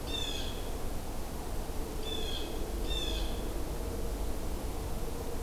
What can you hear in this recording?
Blue Jay